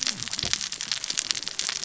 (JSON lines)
{"label": "biophony, cascading saw", "recorder": "SoundTrap 600 or HydroMoth"}